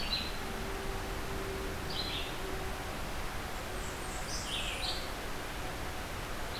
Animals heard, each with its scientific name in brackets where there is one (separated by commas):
Red-eyed Vireo (Vireo olivaceus), Blackburnian Warbler (Setophaga fusca)